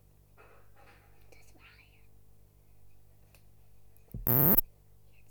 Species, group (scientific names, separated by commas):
Poecilimon lodosi, Orthoptera